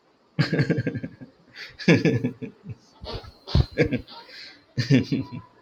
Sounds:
Laughter